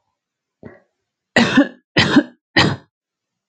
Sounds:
Cough